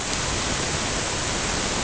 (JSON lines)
{"label": "ambient", "recorder": "HydroMoth"}